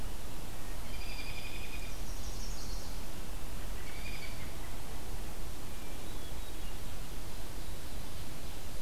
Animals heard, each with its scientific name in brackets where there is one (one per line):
Hermit Thrush (Catharus guttatus)
Chestnut-sided Warbler (Setophaga pensylvanica)
American Robin (Turdus migratorius)